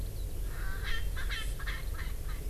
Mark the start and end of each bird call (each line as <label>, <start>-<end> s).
Eurasian Skylark (Alauda arvensis), 0.0-2.5 s
Erckel's Francolin (Pternistis erckelii), 0.4-2.4 s